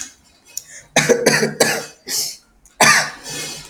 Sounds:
Cough